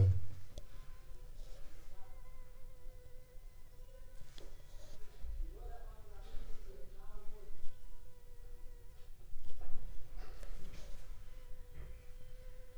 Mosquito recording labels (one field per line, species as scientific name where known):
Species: Anopheles funestus s.l.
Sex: female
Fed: unfed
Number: one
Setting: cup